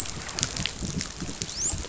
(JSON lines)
{"label": "biophony, dolphin", "recorder": "SoundTrap 500"}